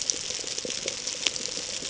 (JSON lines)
{"label": "ambient", "recorder": "HydroMoth"}